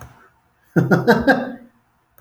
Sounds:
Laughter